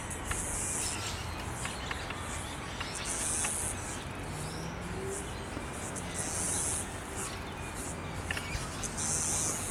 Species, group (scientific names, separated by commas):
Yoyetta cumberlandi, Cicadidae